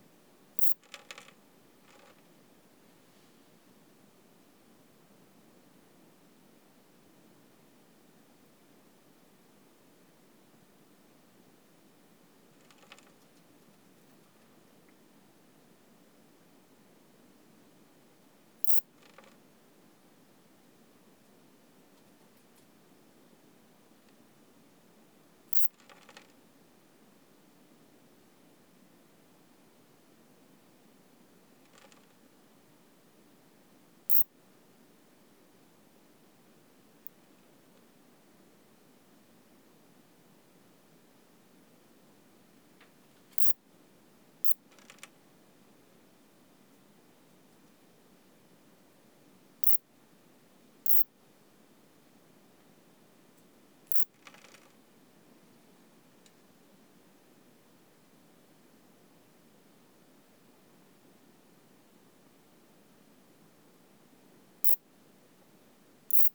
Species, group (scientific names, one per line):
Pseudosubria bispinosa
Orthoptera